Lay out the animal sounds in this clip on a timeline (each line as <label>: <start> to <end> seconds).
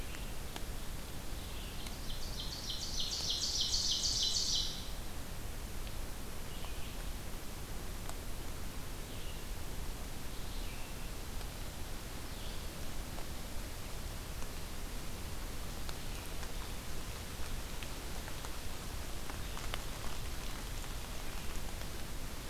Red-eyed Vireo (Vireo olivaceus): 0.0 to 22.5 seconds
Ovenbird (Seiurus aurocapilla): 1.6 to 5.0 seconds